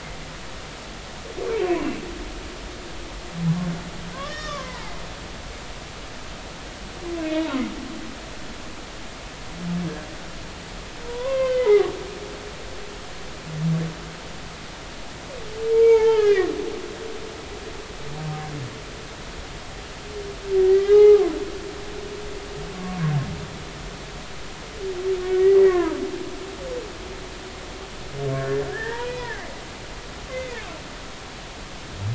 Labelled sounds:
4.1	4.9	humpback whale, 0.80 to 5.6 kHz
7.2	7.5	humpback whale, 2.1 to 2.3 kHz
11.0	11.9	humpback whale, 0.80 to 3.2 kHz
12.3	12.6	humpback whale, 1.5 to 1.6 kHz
15.7	16.5	humpback whale, 0.80 to 3.2 kHz
20.6	21.4	humpback whale, 0.80 to 3.0 kHz
22.8	23.0	humpback whale, 1.1 to 1.2 kHz
25.2	26.0	humpback whale, 0.90 to 2.3 kHz
28.4	29.4	humpback whale, 0.86 to 2.5 kHz
30.3	30.6	humpback whale, 1.7 to 2.1 kHz

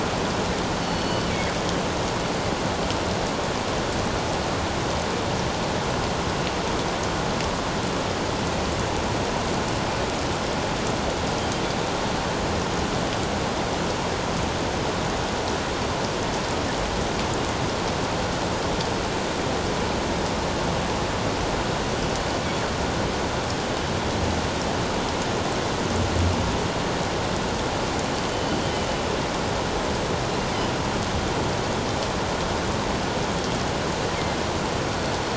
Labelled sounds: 0.8	1.3	killer whale, northern resident, G clan, 2.9 to 4.6 kHz
28.3	28.9	killer whale, northern resident, G clan, 2.9 to 3.2 kHz

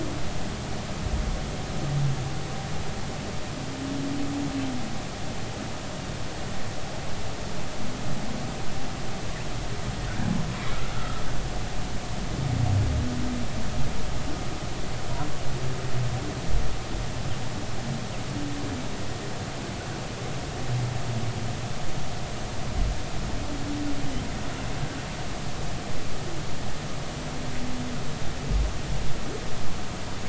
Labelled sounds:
10.9	11.2	humpback whale, 1.2 to 1.5 kHz

